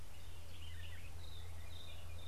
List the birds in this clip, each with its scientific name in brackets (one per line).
White-browed Robin-Chat (Cossypha heuglini)